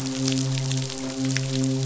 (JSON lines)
{"label": "biophony, midshipman", "recorder": "SoundTrap 500"}